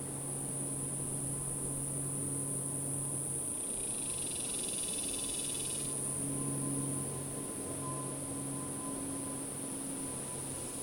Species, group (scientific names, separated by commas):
Glaucopsaltria viridis, Cicadidae